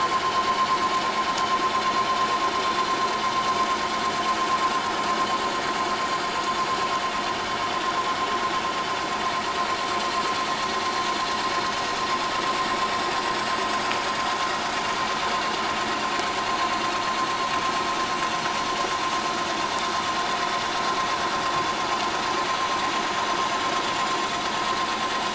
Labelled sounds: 17.9	18.2	vessel noise, 5.8 to 5.9 kHz

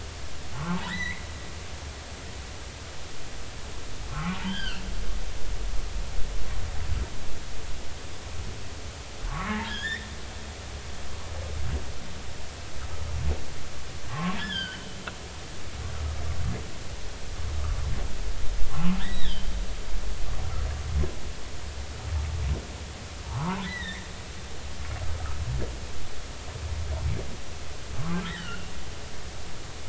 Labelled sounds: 0.5	1.3	humpback whale, 0.83 to 4.1 kHz
4.1	4.8	humpback whale, 1.0 to 3.5 kHz
9.3	10.1	humpback whale, 0.93 to 3.7 kHz
14.1	14.9	humpback whale, 0.99 to 4.9 kHz
18.7	19.5	humpback whale, 0.99 to 3.9 kHz
23.2	24.1	humpback whale, 0.80 to 4.1 kHz
28.3	28.7	humpback whale, 1.3 to 3.2 kHz

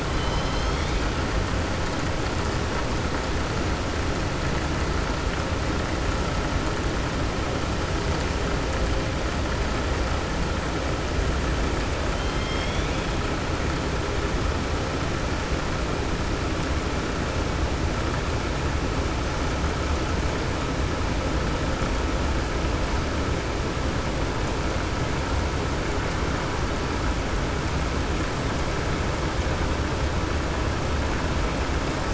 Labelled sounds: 0.1	1.0	killer whale, southern resident, 2.1 to 6.3 kHz
12.1	13.1	killer whale, southern resident, 2.1 to 5.7 kHz

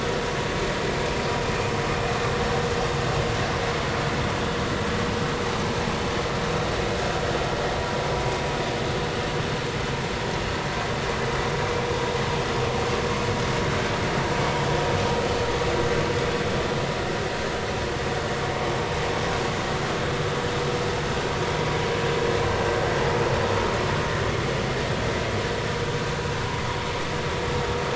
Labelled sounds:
11.5	11.8	vessel noise, 2.2 to 2.4 kHz

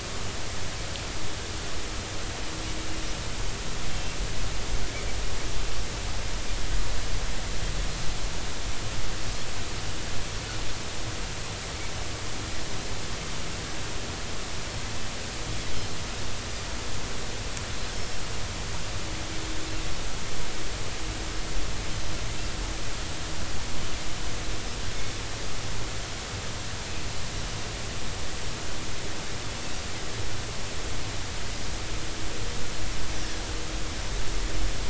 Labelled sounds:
3.9	4.2	Pacific white-sided dolphin, 2.7 to 2.8 kHz
18.9	19.2	Pacific white-sided dolphin, 5.2 to 5.5 kHz

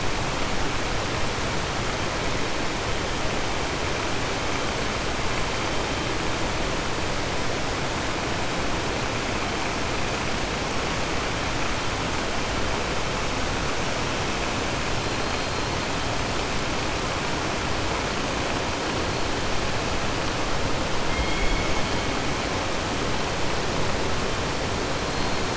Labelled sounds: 21.0	21.6	killer whale, southern resident, 2.1 to 4.3 kHz

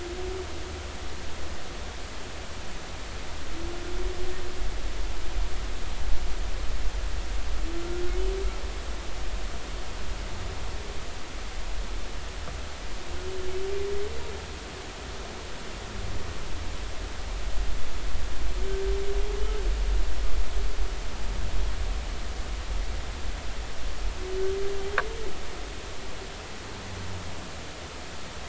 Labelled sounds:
7.7	8.0	humpback whale, 1.3 to 1.5 kHz

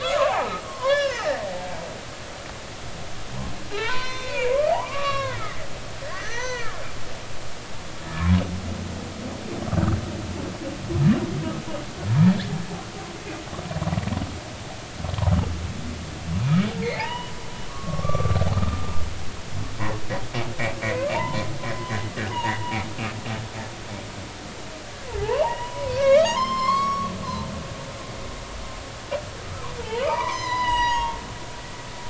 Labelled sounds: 0.0	2.3	humpback whale, 0.80 to 4.1 kHz
3.7	5.5	humpback whale, 0.80 to 6.3 kHz
6.0	6.8	humpback whale, 0.86 to 6.2 kHz
8.1	8.4	humpback whale, 0.99 to 1.4 kHz
16.8	18.9	humpback whale, 0.80 to 3.0 kHz
20.8	21.5	humpback whale, 0.86 to 2.4 kHz
22.3	22.5	humpback whale, 0.80 to 3.0 kHz
25.2	27.1	humpback whale, 0.80 to 7.4 kHz
29.8	32.0	humpback whale, 0.83 to 7.3 kHz

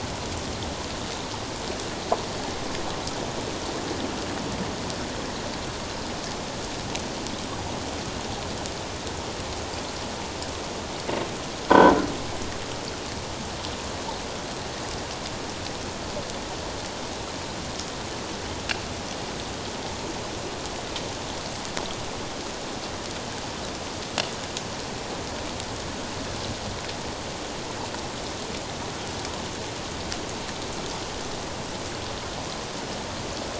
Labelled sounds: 11.7	11.9	croaking sound likely from a nearby submerged object, 0.91 to 1.6 kHz

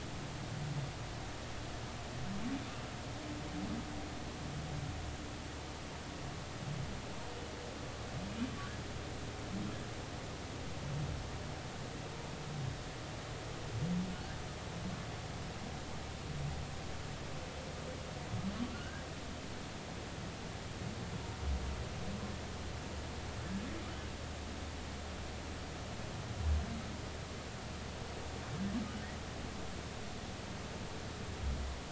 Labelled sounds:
18.7	19.0	humpback whale, 1.3 to 1.7 kHz

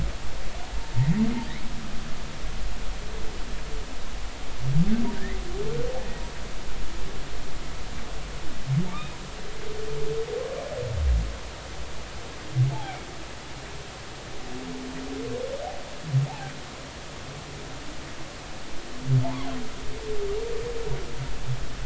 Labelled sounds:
8.9	9.2	humpback whale, 2.1 to 2.6 kHz
12.7	13.0	humpback whale, 0.80 to 0.93 kHz
19.2	19.5	humpback whale, 0.80 to 1.2 kHz

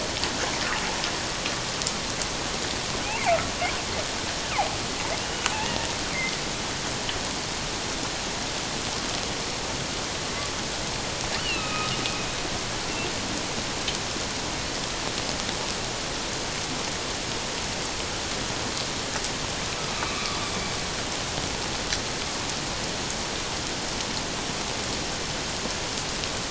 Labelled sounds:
5.2	5.9	killer whale, northern resident, A clan, AA subclan, 1.7 to 3.0 kHz
11.4	11.9	killer whale, northern resident, A clan, AA subclan, 1.2 to 3.1 kHz
20.0	20.4	killer whale, northern resident, A clan, AA subclan, 1.1 to 2.4 kHz

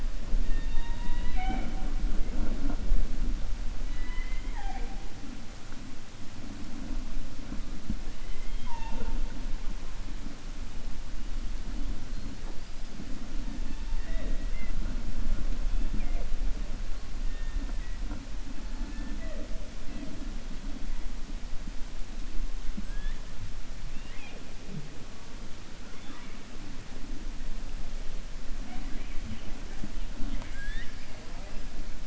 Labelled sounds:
3.8	4.9	killer whale, 0.51 to 4.0 kHz
23.8	24.4	killer whale, 0.45 to 4.1 kHz

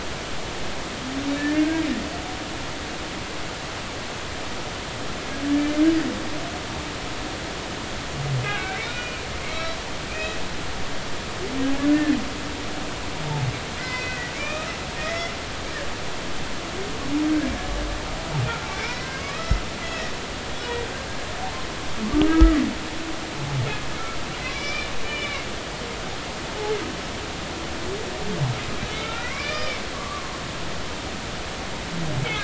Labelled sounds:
1.4	1.9	humpback whale, 1.5 to 1.9 kHz
8.5	10.4	humpback whale, 1.5 to 2.7 kHz
11.9	12.2	humpback whale, 1.7 to 1.9 kHz
13.8	15.4	humpback whale, 1.1 to 5.5 kHz
18.8	20.1	humpback whale, 1.0 to 5.6 kHz
22.2	22.6	humpback whale, 1.2 to 1.7 kHz
24.5	25.5	humpback whale, 2.1 to 5.3 kHz
28.9	30.3	humpback whale, 1.0 to 2.5 kHz

